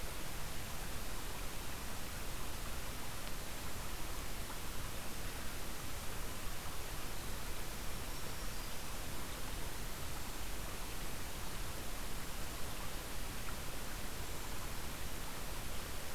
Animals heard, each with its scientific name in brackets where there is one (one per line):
Black-throated Green Warbler (Setophaga virens)
Cedar Waxwing (Bombycilla cedrorum)